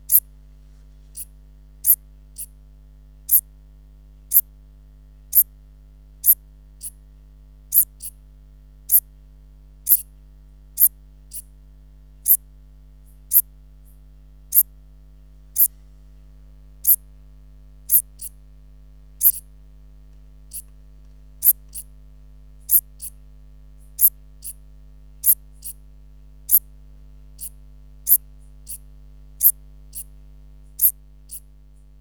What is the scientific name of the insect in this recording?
Eupholidoptera uvarovi